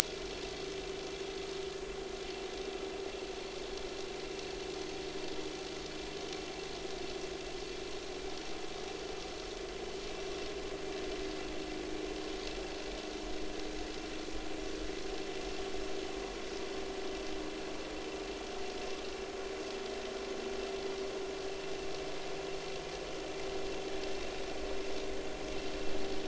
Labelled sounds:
0.0	0.3	vessel noise, 2.3 to 2.5 kHz

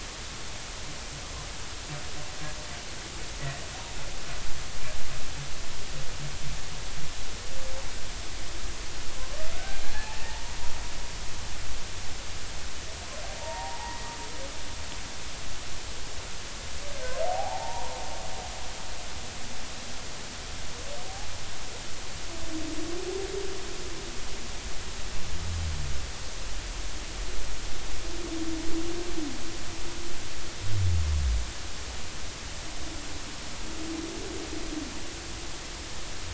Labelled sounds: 9.6	10.5	humpback whale, 0.80 to 1.8 kHz
13.4	14.1	humpback whale, 0.80 to 2.0 kHz
17.2	18.0	humpback whale, 0.80 to 1.0 kHz

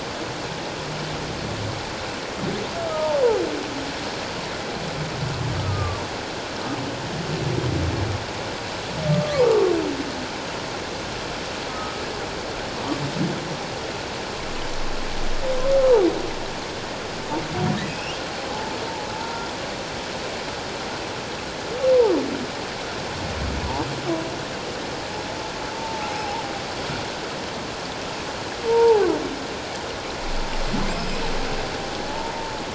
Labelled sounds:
2.9	3.1	humpback whale, 1.2 to 1.3 kHz
5.6	6.0	humpback whale, 1.1 to 1.3 kHz
9.1	9.5	humpback whale, 0.88 to 1.2 kHz
11.7	12.0	humpback whale, 1.2 to 1.3 kHz
17.8	18.2	humpback whale, 2.5 to 2.9 kHz
18.5	19.5	humpback whale, 0.81 to 1.5 kHz
25.7	26.4	humpback whale, 0.78 to 0.97 kHz
28.7	29.0	humpback whale, 0.78 to 1.0 kHz
30.9	31.2	humpback whale, 4.9 to 5.3 kHz
32.1	32.3	humpback whale, 0.84 to 0.97 kHz

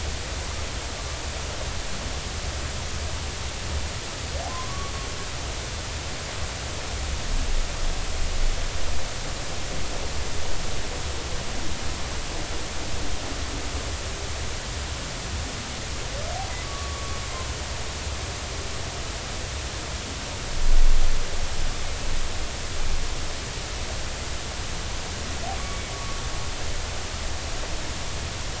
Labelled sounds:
4.5	4.9	humpback whale, 0.96 to 1.2 kHz
16.6	17.2	humpback whale, 1.1 to 1.2 kHz
25.6	26.2	humpback whale, 1.1 to 2.3 kHz

